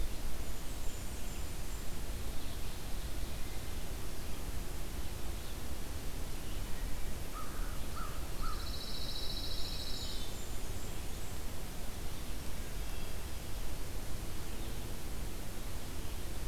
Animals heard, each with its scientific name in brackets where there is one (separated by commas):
Pine Warbler (Setophaga pinus), American Crow (Corvus brachyrhynchos), Wood Thrush (Hylocichla mustelina), Blackburnian Warbler (Setophaga fusca)